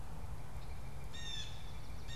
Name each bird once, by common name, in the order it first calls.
Blue Jay, unidentified bird